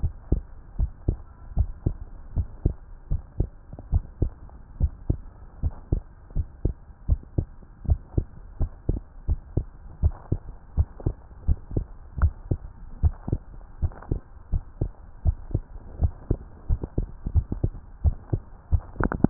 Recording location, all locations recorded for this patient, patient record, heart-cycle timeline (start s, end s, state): tricuspid valve (TV)
aortic valve (AV)+pulmonary valve (PV)+tricuspid valve (TV)+mitral valve (MV)
#Age: Child
#Sex: Female
#Height: 140.0 cm
#Weight: 29.0 kg
#Pregnancy status: False
#Murmur: Absent
#Murmur locations: nan
#Most audible location: nan
#Systolic murmur timing: nan
#Systolic murmur shape: nan
#Systolic murmur grading: nan
#Systolic murmur pitch: nan
#Systolic murmur quality: nan
#Diastolic murmur timing: nan
#Diastolic murmur shape: nan
#Diastolic murmur grading: nan
#Diastolic murmur pitch: nan
#Diastolic murmur quality: nan
#Outcome: Normal
#Campaign: 2015 screening campaign
0.00	0.14	S1
0.14	0.28	systole
0.28	0.44	S2
0.44	0.76	diastole
0.76	0.90	S1
0.90	1.04	systole
1.04	1.20	S2
1.20	1.54	diastole
1.54	1.70	S1
1.70	1.84	systole
1.84	1.98	S2
1.98	2.34	diastole
2.34	2.48	S1
2.48	2.60	systole
2.60	2.76	S2
2.76	3.08	diastole
3.08	3.22	S1
3.22	3.36	systole
3.36	3.50	S2
3.50	3.90	diastole
3.90	4.04	S1
4.04	4.18	systole
4.18	4.32	S2
4.32	4.76	diastole
4.76	4.92	S1
4.92	5.06	systole
5.06	5.20	S2
5.20	5.60	diastole
5.60	5.74	S1
5.74	5.90	systole
5.90	6.04	S2
6.04	6.34	diastole
6.34	6.48	S1
6.48	6.64	systole
6.64	6.76	S2
6.76	7.06	diastole
7.06	7.20	S1
7.20	7.34	systole
7.34	7.46	S2
7.46	7.84	diastole
7.84	8.00	S1
8.00	8.16	systole
8.16	8.26	S2
8.26	8.58	diastole
8.58	8.70	S1
8.70	8.88	systole
8.88	9.00	S2
9.00	9.28	diastole
9.28	9.40	S1
9.40	9.54	systole
9.54	9.68	S2
9.68	10.00	diastole
10.00	10.14	S1
10.14	10.30	systole
10.30	10.40	S2
10.40	10.76	diastole
10.76	10.88	S1
10.88	11.04	systole
11.04	11.16	S2
11.16	11.46	diastole
11.46	11.58	S1
11.58	11.72	systole
11.72	11.86	S2
11.86	12.20	diastole
12.20	12.34	S1
12.34	12.48	systole
12.48	12.60	S2
12.60	13.00	diastole
13.00	13.14	S1
13.14	13.28	systole
13.28	13.42	S2
13.42	13.82	diastole
13.82	13.92	S1
13.92	14.10	systole
14.10	14.20	S2
14.20	14.52	diastole
14.52	14.64	S1
14.64	14.80	systole
14.80	14.92	S2
14.92	15.24	diastole
15.24	15.36	S1
15.36	15.52	systole
15.52	15.64	S2
15.64	15.98	diastole
15.98	16.12	S1
16.12	16.26	systole
16.26	16.38	S2
16.38	16.67	diastole